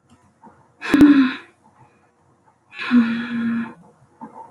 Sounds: Sniff